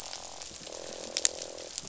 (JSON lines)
{"label": "biophony, croak", "recorder": "SoundTrap 500"}